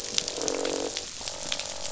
{"label": "biophony, croak", "recorder": "SoundTrap 500"}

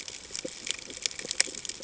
{"label": "ambient", "recorder": "HydroMoth"}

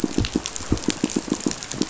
{"label": "biophony, pulse", "recorder": "SoundTrap 500"}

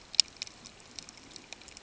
{"label": "ambient", "recorder": "HydroMoth"}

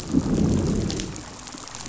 {"label": "biophony, growl", "recorder": "SoundTrap 500"}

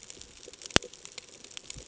{"label": "ambient", "recorder": "HydroMoth"}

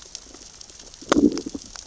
{"label": "biophony, growl", "recorder": "SoundTrap 600 or HydroMoth"}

